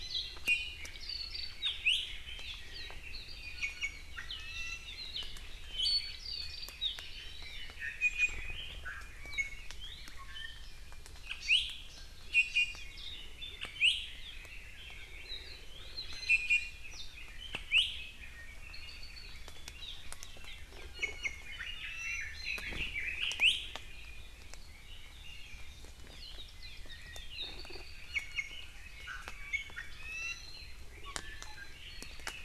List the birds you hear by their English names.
Iiwi, Hawaii Creeper, Hawaii Amakihi, Red-billed Leiothrix, Warbling White-eye, Apapane